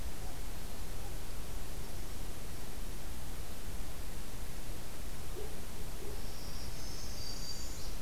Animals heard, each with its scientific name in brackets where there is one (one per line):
Black-throated Green Warbler (Setophaga virens)
Northern Parula (Setophaga americana)